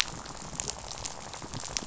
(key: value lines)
label: biophony, rattle
recorder: SoundTrap 500